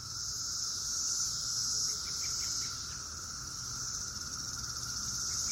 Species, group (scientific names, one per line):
Magicicada septendecim
Cicadidae